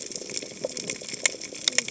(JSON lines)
{"label": "biophony, cascading saw", "recorder": "HydroMoth"}